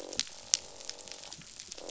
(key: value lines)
label: biophony, croak
recorder: SoundTrap 500